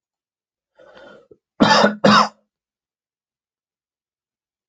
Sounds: Cough